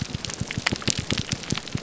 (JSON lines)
{"label": "biophony", "recorder": "SoundTrap 300"}